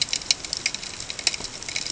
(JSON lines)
{"label": "ambient", "recorder": "HydroMoth"}